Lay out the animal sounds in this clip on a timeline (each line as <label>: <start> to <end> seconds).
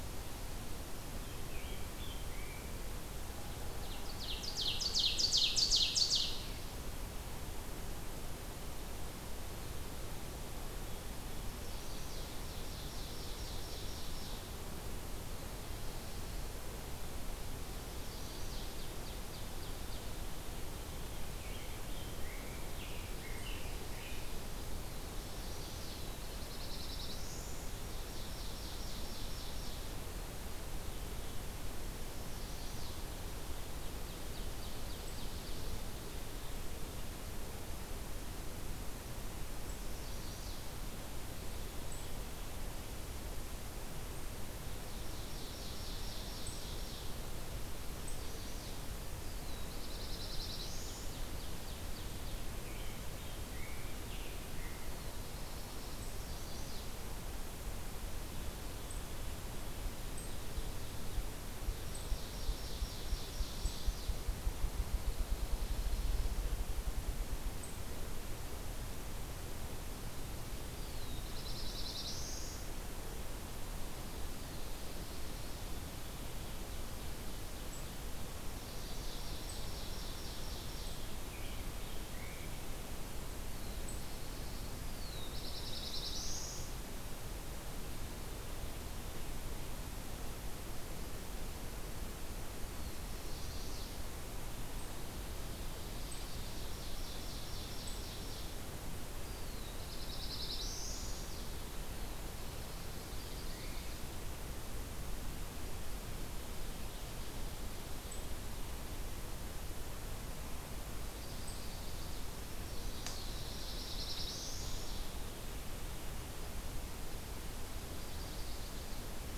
Rose-breasted Grosbeak (Pheucticus ludovicianus): 1.0 to 2.9 seconds
Ovenbird (Seiurus aurocapilla): 3.5 to 6.4 seconds
Ovenbird (Seiurus aurocapilla): 11.0 to 14.5 seconds
Chestnut-sided Warbler (Setophaga pensylvanica): 17.7 to 18.7 seconds
Ovenbird (Seiurus aurocapilla): 18.3 to 20.2 seconds
Rose-breasted Grosbeak (Pheucticus ludovicianus): 21.1 to 24.5 seconds
Chestnut-sided Warbler (Setophaga pensylvanica): 25.0 to 26.0 seconds
Black-throated Blue Warbler (Setophaga caerulescens): 25.8 to 27.8 seconds
Ovenbird (Seiurus aurocapilla): 27.5 to 30.0 seconds
Chestnut-sided Warbler (Setophaga pensylvanica): 32.0 to 33.0 seconds
Ovenbird (Seiurus aurocapilla): 32.8 to 35.7 seconds
Chestnut-sided Warbler (Setophaga pensylvanica): 39.6 to 40.7 seconds
Ovenbird (Seiurus aurocapilla): 44.6 to 47.3 seconds
Chestnut-sided Warbler (Setophaga pensylvanica): 47.9 to 48.8 seconds
Black-throated Blue Warbler (Setophaga caerulescens): 49.2 to 51.4 seconds
Ovenbird (Seiurus aurocapilla): 50.7 to 52.5 seconds
American Robin (Turdus migratorius): 52.5 to 55.1 seconds
Chestnut-sided Warbler (Setophaga pensylvanica): 56.1 to 56.9 seconds
Ovenbird (Seiurus aurocapilla): 59.8 to 61.2 seconds
Ovenbird (Seiurus aurocapilla): 61.8 to 64.2 seconds
Ruffed Grouse (Bonasa umbellus): 62.8 to 66.6 seconds
Black-throated Blue Warbler (Setophaga caerulescens): 70.6 to 72.7 seconds
Ovenbird (Seiurus aurocapilla): 78.3 to 81.2 seconds
American Robin (Turdus migratorius): 81.2 to 82.6 seconds
Black-throated Blue Warbler (Setophaga caerulescens): 83.2 to 86.9 seconds
Chestnut-sided Warbler (Setophaga pensylvanica): 93.0 to 93.9 seconds
Ovenbird (Seiurus aurocapilla): 96.0 to 98.6 seconds
Black-throated Blue Warbler (Setophaga caerulescens): 99.1 to 101.3 seconds
Chestnut-sided Warbler (Setophaga pensylvanica): 100.3 to 101.6 seconds
Ovenbird (Seiurus aurocapilla): 102.5 to 104.2 seconds
Chestnut-sided Warbler (Setophaga pensylvanica): 111.1 to 112.3 seconds
Black-throated Blue Warbler (Setophaga caerulescens): 112.8 to 115.1 seconds
Ovenbird (Seiurus aurocapilla): 113.4 to 115.1 seconds
Chestnut-sided Warbler (Setophaga pensylvanica): 117.7 to 119.0 seconds